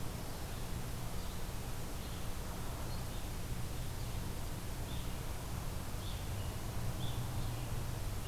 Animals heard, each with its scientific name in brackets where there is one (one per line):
Evening Grosbeak (Coccothraustes vespertinus)
Red-eyed Vireo (Vireo olivaceus)
Black-throated Green Warbler (Setophaga virens)